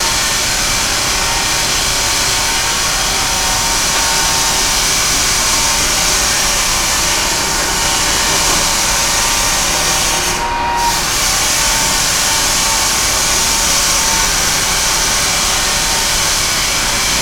Does the motor stop?
no